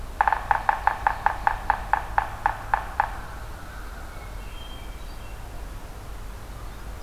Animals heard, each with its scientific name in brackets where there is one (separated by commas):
Hermit Thrush (Catharus guttatus), Yellow-bellied Sapsucker (Sphyrapicus varius)